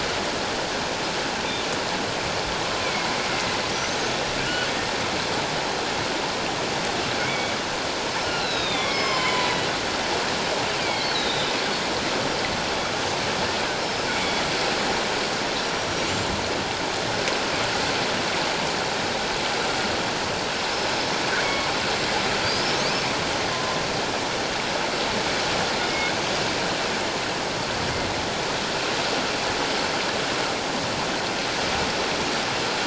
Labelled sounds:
2.8	4.2	killer whale, northern resident, 2.1 to 6.6 kHz
7.2	7.5	killer whale, northern resident, 2.1 to 3.5 kHz
8.2	9.5	killer whale, northern resident, 0.94 to 7.3 kHz
10.8	11.5	killer whale, northern resident, 2.1 to 4.2 kHz
13.8	14.4	killer whale, northern resident, 2.1 to 5.3 kHz
20.7	21.7	killer whale, northern resident, 1.0 to 5.3 kHz
22.4	22.8	killer whale, northern resident, 4.5 to 5.7 kHz
23.5	23.8	killer whale, northern resident, 1.0 to 1.1 kHz

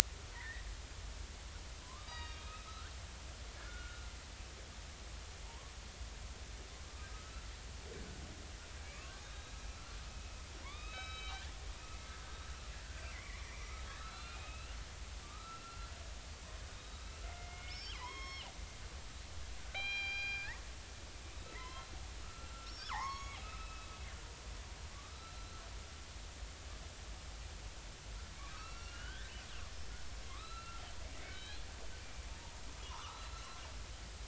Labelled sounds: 0.3	0.7	killer whale, northern resident, 1.7 to 2.1 kHz
1.8	2.9	killer whale, northern resident, 0.96 to 4.9 kHz
3.6	4.1	killer whale, northern resident, 1.3 to 1.5 kHz
5.4	5.7	killer whale, northern resident, 0.86 to 1.2 kHz
6.8	7.5	killer whale, northern resident, 1.1 to 1.5 kHz
8.8	11.4	killer whale, northern resident, 0.93 to 5.4 kHz
13.1	15.9	killer whale, northern resident, 0.96 to 4.2 kHz
16.7	18.5	killer whale, northern resident, 0.80 to 5.5 kHz
19.6	20.6	killer whale, northern resident, 0.80 to 4.9 kHz
21.5	23.9	killer whale, northern resident, 0.80 to 6.8 kHz
25.1	25.5	killer whale, northern resident, 1.3 to 4.1 kHz
28.3	29.3	killer whale, northern resident, 0.99 to 3.6 kHz
30.3	30.8	killer whale, northern resident, 0.99 to 4.1 kHz
31.2	31.6	killer whale, northern resident, 2.1 to 4.3 kHz
32.3	32.6	killer whale, northern resident, 0.83 to 0.99 kHz
32.9	33.6	killer whale, northern resident, 0.83 to 4.1 kHz

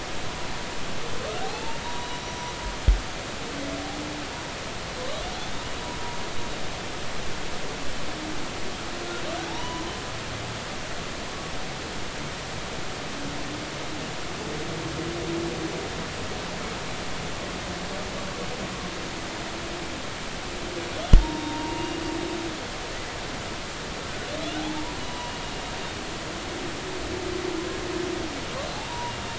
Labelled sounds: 1.4	2.3	humpback whale, 0.80 to 4.0 kHz
9.5	9.9	humpback whale, 0.83 to 3.0 kHz
21.2	22.0	humpback whale, 0.86 to 2.9 kHz
24.6	25.3	humpback whale, 0.80 to 3.9 kHz
28.9	29.1	humpback whale, 0.90 to 1.0 kHz

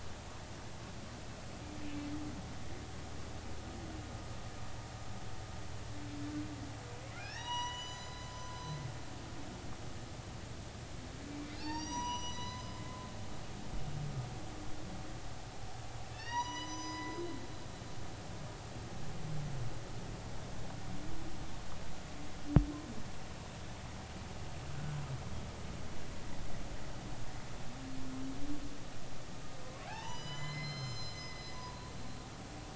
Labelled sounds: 7.1	8.3	humpback whale, 0.80 to 7.0 kHz
11.5	12.8	humpback whale, 0.80 to 7.8 kHz
16.1	17.2	humpback whale, 0.90 to 6.9 kHz
29.9	31.9	humpback whale, 0.80 to 7.2 kHz

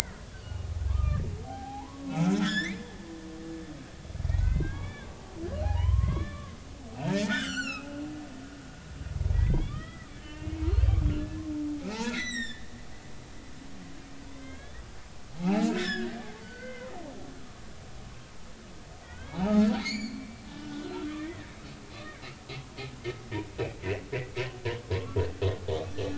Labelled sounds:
0.3	2.8	humpback whale, 0.80 to 5.5 kHz
4.3	5.1	humpback whale, 1.5 to 3.6 kHz
5.6	7.9	humpback whale, 0.80 to 7.6 kHz
9.3	10.7	humpback whale, 1.1 to 3.6 kHz
11.8	12.7	humpback whale, 1.2 to 8.0 kHz
14.3	14.8	humpback whale, 1.5 to 3.6 kHz
15.3	17.0	humpback whale, 0.80 to 5.6 kHz
17.3	17.6	humpback whale, 1.1 to 1.4 kHz
19.0	21.5	humpback whale, 0.80 to 7.1 kHz
21.9	22.2	humpback whale, 3.5 to 4.4 kHz
25.7	26.1	humpback whale, 1.1 to 6.0 kHz

